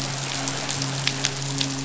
{"label": "biophony, midshipman", "recorder": "SoundTrap 500"}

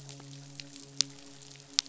{"label": "biophony, midshipman", "recorder": "SoundTrap 500"}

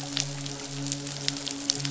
{"label": "biophony, midshipman", "recorder": "SoundTrap 500"}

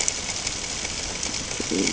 {"label": "ambient", "recorder": "HydroMoth"}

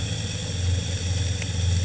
{"label": "anthrophony, boat engine", "recorder": "HydroMoth"}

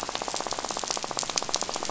{"label": "biophony, rattle", "recorder": "SoundTrap 500"}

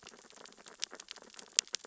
{"label": "biophony, sea urchins (Echinidae)", "recorder": "SoundTrap 600 or HydroMoth"}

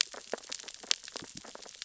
{"label": "biophony, sea urchins (Echinidae)", "recorder": "SoundTrap 600 or HydroMoth"}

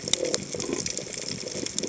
{"label": "biophony", "recorder": "HydroMoth"}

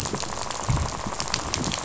{"label": "biophony, rattle", "recorder": "SoundTrap 500"}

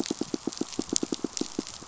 {"label": "biophony, pulse", "recorder": "SoundTrap 500"}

